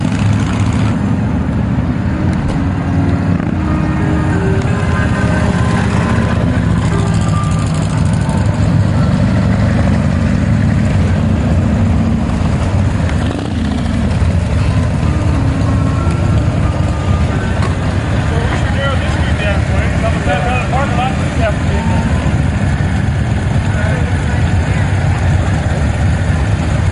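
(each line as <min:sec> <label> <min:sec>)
0:00.0 A motorcycle engine starts. 0:01.7
0:03.8 Music playing while a motorcycle is running, possibly startup sounds. 0:07.8
0:17.6 People murmuring in the background while a motorcycle engine runs. 0:23.4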